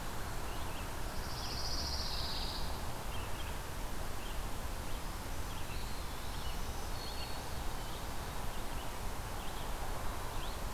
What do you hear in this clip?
Red-eyed Vireo, Pine Warbler, Black-throated Green Warbler